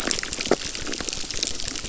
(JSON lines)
{"label": "biophony, crackle", "recorder": "SoundTrap 600"}